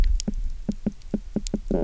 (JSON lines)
{"label": "biophony, knock croak", "recorder": "SoundTrap 300"}